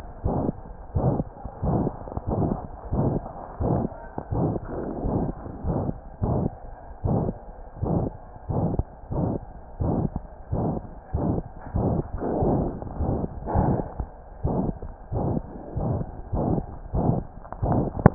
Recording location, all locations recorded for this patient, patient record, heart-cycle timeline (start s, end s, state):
aortic valve (AV)
aortic valve (AV)+pulmonary valve (PV)+tricuspid valve (TV)+mitral valve (MV)
#Age: Child
#Sex: Female
#Height: 117.0 cm
#Weight: 20.8 kg
#Pregnancy status: False
#Murmur: Present
#Murmur locations: aortic valve (AV)+mitral valve (MV)+pulmonary valve (PV)+tricuspid valve (TV)
#Most audible location: tricuspid valve (TV)
#Systolic murmur timing: Holosystolic
#Systolic murmur shape: Plateau
#Systolic murmur grading: III/VI or higher
#Systolic murmur pitch: High
#Systolic murmur quality: Harsh
#Diastolic murmur timing: nan
#Diastolic murmur shape: nan
#Diastolic murmur grading: nan
#Diastolic murmur pitch: nan
#Diastolic murmur quality: nan
#Outcome: Abnormal
#Campaign: 2015 screening campaign
0.00	0.20	unannotated
0.20	0.33	S1
0.33	0.43	systole
0.43	0.60	S2
0.60	0.90	diastole
0.90	1.04	S1
1.04	1.15	systole
1.15	1.28	S2
1.28	1.59	diastole
1.59	1.73	S1
1.73	1.84	systole
1.84	1.94	S2
1.94	2.25	diastole
2.25	2.39	S1
2.39	2.48	systole
2.48	2.59	S2
2.59	2.89	diastole
2.89	3.02	S1
3.02	3.13	systole
3.13	3.24	S2
3.24	3.55	diastole
3.55	3.70	S1
3.70	3.81	systole
3.81	3.92	S2
3.92	4.28	diastole
4.28	4.40	S1
4.40	4.52	systole
4.52	4.62	S2
4.62	5.00	diastole
5.00	5.13	S1
5.13	5.25	systole
5.25	5.36	S2
5.36	5.61	diastole
5.61	5.75	S1
5.75	5.85	systole
5.85	5.96	S2
5.96	6.19	diastole
6.19	6.31	S1
6.31	6.42	systole
6.42	6.54	S2
6.54	7.00	diastole
7.00	7.13	S1
7.13	7.24	systole
7.24	7.38	S2
7.38	7.80	diastole
7.80	7.92	S1
7.92	8.02	systole
8.02	8.14	S2
8.14	8.46	diastole
8.46	8.58	S1
8.58	8.72	systole
8.72	8.90	S2
8.90	9.09	diastole
9.09	9.20	S1
9.20	9.31	systole
9.31	9.44	S2
9.44	9.77	diastole
9.77	9.89	S1
9.89	18.14	unannotated